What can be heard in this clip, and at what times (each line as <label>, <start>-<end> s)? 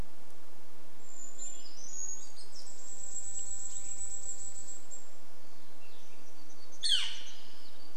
Brown Creeper song, 0-4 s
Cassin's Vireo song, 0-6 s
unidentified sound, 2-6 s
Northern Flicker call, 6-8 s
warbler song, 6-8 s